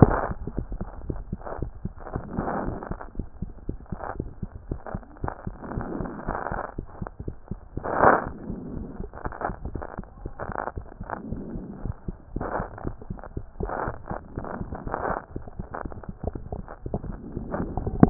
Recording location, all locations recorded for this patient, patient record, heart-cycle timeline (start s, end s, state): mitral valve (MV)
aortic valve (AV)+pulmonary valve (PV)+tricuspid valve (TV)+mitral valve (MV)
#Age: Child
#Sex: Male
#Height: 130.0 cm
#Weight: 26.7 kg
#Pregnancy status: False
#Murmur: Absent
#Murmur locations: nan
#Most audible location: nan
#Systolic murmur timing: nan
#Systolic murmur shape: nan
#Systolic murmur grading: nan
#Systolic murmur pitch: nan
#Systolic murmur quality: nan
#Diastolic murmur timing: nan
#Diastolic murmur shape: nan
#Diastolic murmur grading: nan
#Diastolic murmur pitch: nan
#Diastolic murmur quality: nan
#Outcome: Normal
#Campaign: 2014 screening campaign
0.00	2.98	unannotated
2.98	3.16	diastole
3.16	3.26	S1
3.26	3.40	systole
3.40	3.50	S2
3.50	3.68	diastole
3.68	3.78	S1
3.78	3.90	systole
3.90	4.00	S2
4.00	4.18	diastole
4.18	4.30	S1
4.30	4.42	systole
4.42	4.50	S2
4.50	4.68	diastole
4.68	4.80	S1
4.80	4.92	systole
4.92	5.02	S2
5.02	5.22	diastole
5.22	5.32	S1
5.32	5.46	systole
5.46	5.56	S2
5.56	5.74	diastole
5.74	5.86	S1
5.86	5.98	systole
5.98	6.10	S2
6.10	6.26	diastole
6.26	6.38	S1
6.38	6.50	systole
6.50	6.62	S2
6.62	6.78	diastole
6.78	6.86	S1
6.86	7.00	systole
7.00	7.10	S2
7.10	7.26	diastole
7.26	7.34	S1
7.34	7.45	systole
7.45	18.10	unannotated